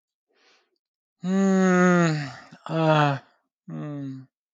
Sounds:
Sigh